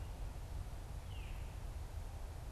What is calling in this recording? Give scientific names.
Catharus fuscescens